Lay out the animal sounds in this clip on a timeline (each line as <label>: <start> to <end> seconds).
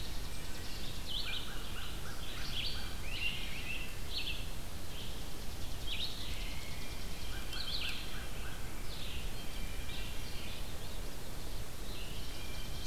Chipping Sparrow (Spizella passerina): 0.0 to 1.3 seconds
Red-eyed Vireo (Vireo olivaceus): 0.0 to 12.9 seconds
American Crow (Corvus brachyrhynchos): 1.2 to 2.9 seconds
Chipping Sparrow (Spizella passerina): 5.1 to 7.5 seconds
American Crow (Corvus brachyrhynchos): 7.2 to 8.6 seconds
Blue Jay (Cyanocitta cristata): 9.3 to 10.8 seconds
Blue Jay (Cyanocitta cristata): 12.1 to 12.9 seconds
Chipping Sparrow (Spizella passerina): 12.1 to 12.9 seconds